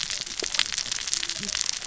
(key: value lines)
label: biophony, cascading saw
recorder: SoundTrap 600 or HydroMoth